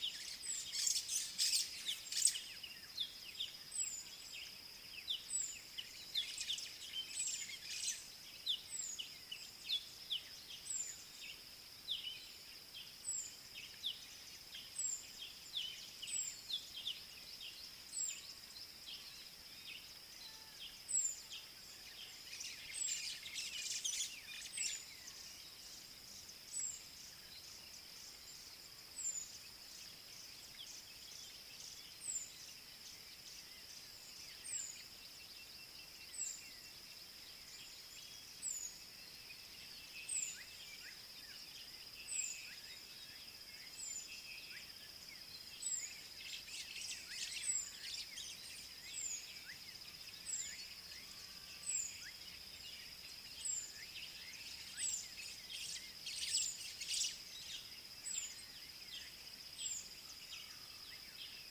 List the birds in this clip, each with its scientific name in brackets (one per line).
Southern Black-Flycatcher (Melaenornis pammelaina)
Sulphur-breasted Bushshrike (Telophorus sulfureopectus)
White-browed Sparrow-Weaver (Plocepasser mahali)
Scarlet-chested Sunbird (Chalcomitra senegalensis)